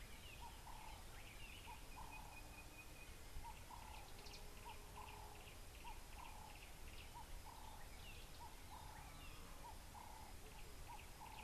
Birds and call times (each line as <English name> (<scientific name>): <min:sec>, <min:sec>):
Sulphur-breasted Bushshrike (Telophorus sulfureopectus): 0:02.6
Ring-necked Dove (Streptopelia capicola): 0:07.6